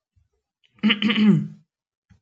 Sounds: Throat clearing